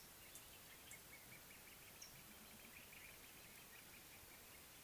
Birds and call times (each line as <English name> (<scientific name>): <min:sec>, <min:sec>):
Crowned Hornbill (Lophoceros alboterminatus): 0:01.5